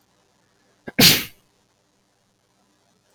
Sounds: Sneeze